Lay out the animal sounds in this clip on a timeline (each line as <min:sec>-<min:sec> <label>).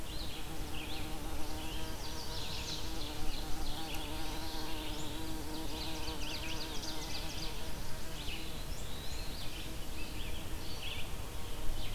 0:00.0-0:03.9 Red-eyed Vireo (Vireo olivaceus)
0:01.4-0:03.0 Chestnut-sided Warbler (Setophaga pensylvanica)
0:04.4-0:05.2 American Goldfinch (Spinus tristis)
0:04.4-0:11.9 Red-eyed Vireo (Vireo olivaceus)
0:05.2-0:07.7 Ovenbird (Seiurus aurocapilla)
0:08.6-0:09.5 Eastern Wood-Pewee (Contopus virens)